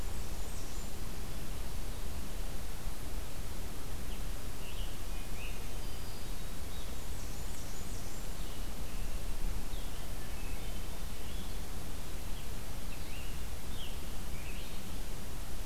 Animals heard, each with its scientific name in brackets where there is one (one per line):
Blackburnian Warbler (Setophaga fusca)
Blue-headed Vireo (Vireo solitarius)
Scarlet Tanager (Piranga olivacea)
Hermit Thrush (Catharus guttatus)